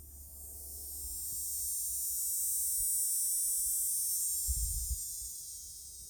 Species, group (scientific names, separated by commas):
Neotibicen canicularis, Cicadidae